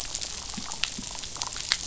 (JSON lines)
{"label": "biophony, damselfish", "recorder": "SoundTrap 500"}